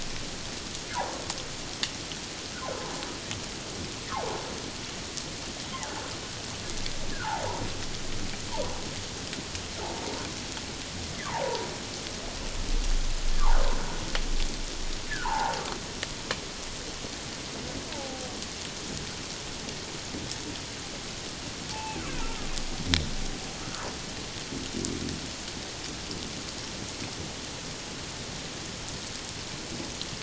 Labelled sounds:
4.1	4.4	humpback whale, 0.78 to 1.3 kHz
5.7	6.1	humpback whale, 1.4 to 2.2 kHz
7.1	7.6	humpback whale, 0.78 to 1.8 kHz
8.5	8.8	humpback whale, 0.81 to 1.1 kHz
11.2	11.7	humpback whale, 0.78 to 1.2 kHz
13.3	13.6	humpback whale, 0.78 to 1.8 kHz
15.1	15.6	humpback whale, 0.78 to 1.8 kHz
17.9	18.3	humpback whale, 0.78 to 0.97 kHz
21.7	22.4	humpback whale, 0.78 to 2.7 kHz

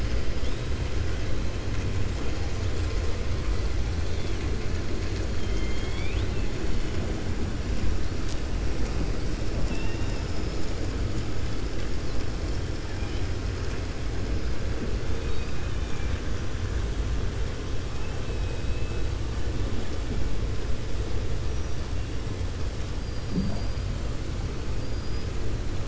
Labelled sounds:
5.3	6.4	killer whale, 1.8 to 4.7 kHz
15.1	16.2	killer whale, 1.7 to 4.8 kHz
17.9	19.0	killer whale, 2.5 to 3.3 kHz
23.0	23.8	killer whale, 4.1 to 5.6 kHz
24.8	25.3	killer whale, 4.7 to 5.2 kHz

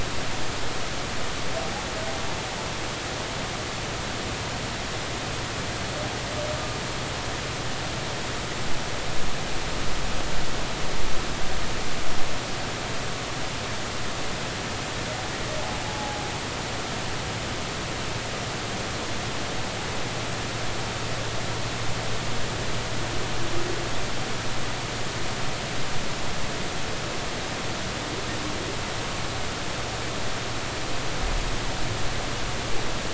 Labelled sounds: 1.6	1.8	humpback whale, 0.80 to 0.90 kHz
15.9	16.2	humpback whale, 0.80 to 0.90 kHz

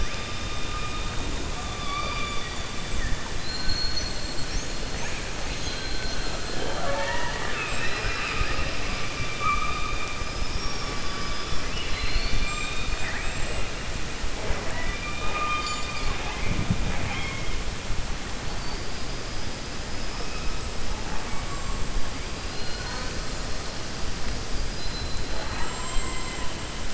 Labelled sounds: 1.7	2.6	killer whale, 0.60 to 4.8 kHz

